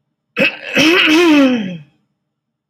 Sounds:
Throat clearing